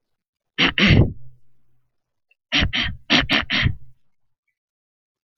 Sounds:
Throat clearing